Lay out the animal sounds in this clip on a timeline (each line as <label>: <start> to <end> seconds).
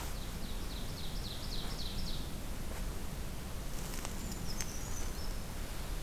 Ovenbird (Seiurus aurocapilla): 0.0 to 2.3 seconds
Brown Creeper (Certhia americana): 4.1 to 5.4 seconds